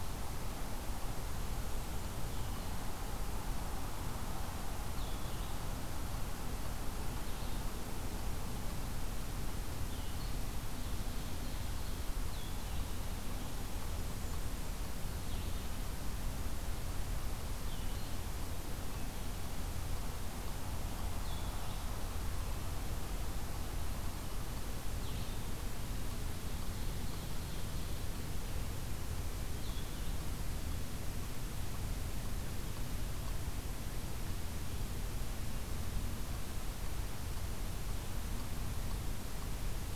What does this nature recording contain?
Blue-headed Vireo, Ovenbird